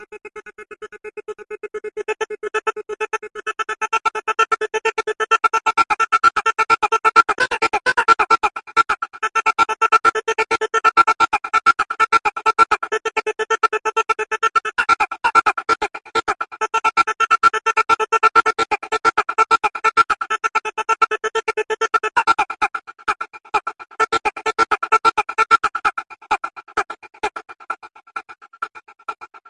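An electronic male voice repeats with changing volume. 0:00.0 - 0:29.5

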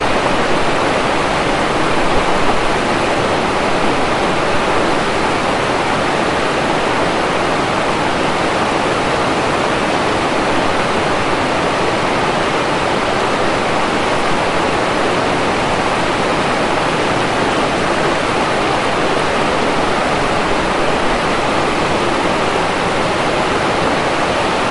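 Water flows continuously and loudly. 0:00.0 - 0:24.7

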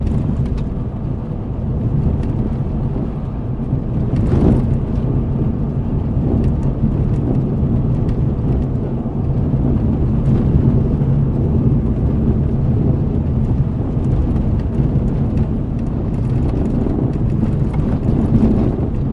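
A car rattles while driving on an uneven road. 0:00.0 - 0:19.1

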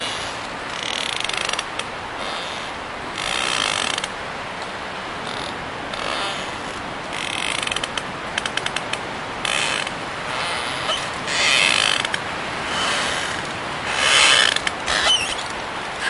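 Creaking sounds like wood or branches in the wind. 0:00.5 - 0:02.0
Creaking sounds like wood or branches in the wind. 0:03.2 - 0:04.2
Creaking sounds like wood or branches in the wind. 0:05.9 - 0:16.1

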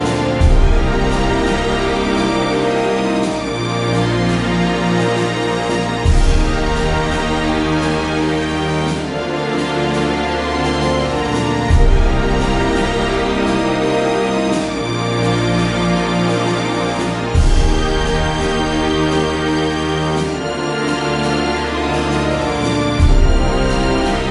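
Emotional orchestral music with soft strings and strong drum hits. 0:00.1 - 0:24.3
Soft orchestral melody with emotional tone. 0:00.2 - 0:05.7
A loud cinematic drum hit adding impact to the orchestral sound. 0:06.0 - 0:06.6

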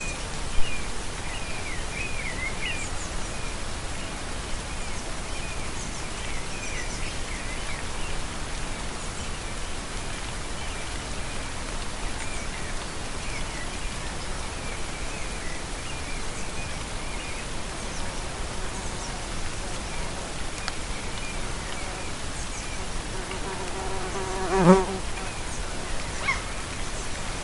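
Rain dripping and birds chirping in nature. 0:00.0 - 0:23.6
A mosquito buzzes, gradually getting louder. 0:23.7 - 0:27.4

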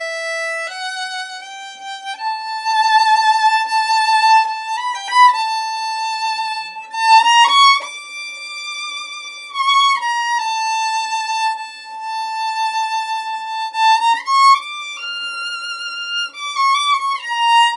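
A violin is playing. 0:00.1 - 0:17.8

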